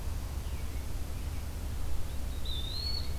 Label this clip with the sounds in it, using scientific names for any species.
Turdus migratorius, Contopus virens